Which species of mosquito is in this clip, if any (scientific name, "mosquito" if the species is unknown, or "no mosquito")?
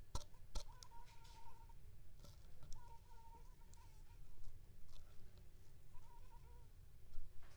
Anopheles funestus s.l.